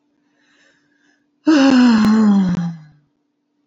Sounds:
Sigh